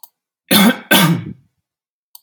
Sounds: Cough